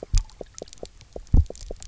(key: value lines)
label: biophony, knock
recorder: SoundTrap 300